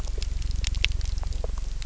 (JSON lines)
{"label": "anthrophony, boat engine", "recorder": "SoundTrap 300"}